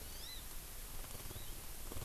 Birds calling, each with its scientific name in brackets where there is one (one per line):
Hawaii Amakihi (Chlorodrepanis virens)